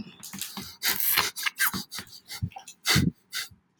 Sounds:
Sniff